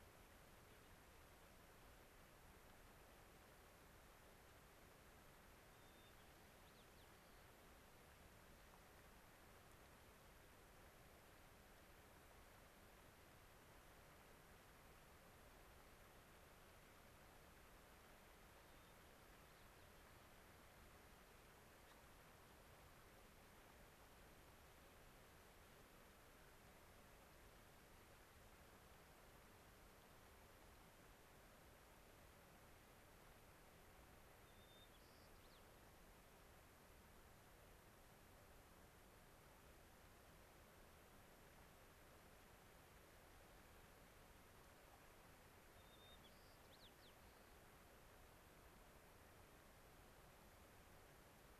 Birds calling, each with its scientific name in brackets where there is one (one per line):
White-crowned Sparrow (Zonotrichia leucophrys)
Gray-crowned Rosy-Finch (Leucosticte tephrocotis)